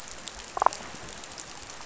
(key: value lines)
label: biophony, damselfish
recorder: SoundTrap 500